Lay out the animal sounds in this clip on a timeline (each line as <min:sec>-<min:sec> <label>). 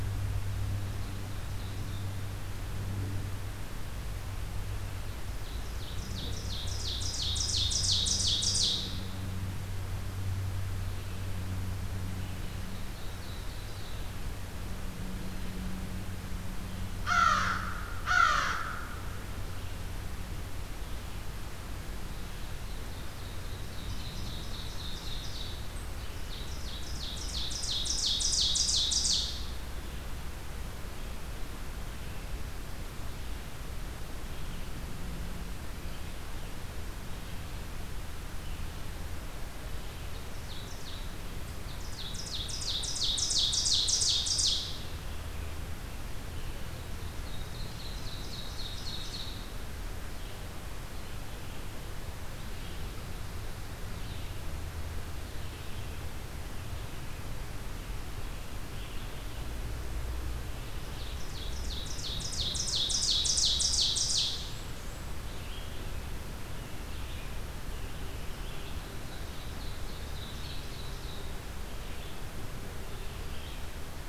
0:00.5-0:02.1 Ovenbird (Seiurus aurocapilla)
0:05.4-0:09.3 Ovenbird (Seiurus aurocapilla)
0:12.3-0:14.6 Ovenbird (Seiurus aurocapilla)
0:16.7-0:19.1 American Crow (Corvus brachyrhynchos)
0:22.5-0:25.6 Ovenbird (Seiurus aurocapilla)
0:26.0-0:29.8 Ovenbird (Seiurus aurocapilla)
0:30.7-1:14.1 Red-eyed Vireo (Vireo olivaceus)
0:39.9-0:41.1 Ovenbird (Seiurus aurocapilla)
0:41.6-0:45.4 Ovenbird (Seiurus aurocapilla)
0:46.8-0:49.6 Ovenbird (Seiurus aurocapilla)
1:00.4-1:04.8 Ovenbird (Seiurus aurocapilla)
1:04.2-1:05.2 Blackburnian Warbler (Setophaga fusca)
1:08.3-1:11.5 Ovenbird (Seiurus aurocapilla)